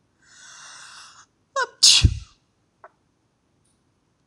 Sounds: Sneeze